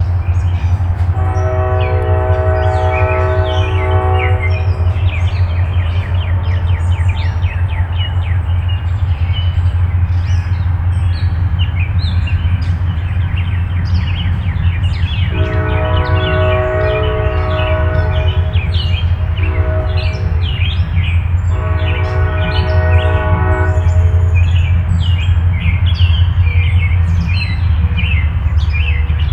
What animal is chirping?
bird